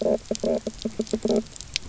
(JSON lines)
{"label": "biophony, knock croak", "recorder": "SoundTrap 300"}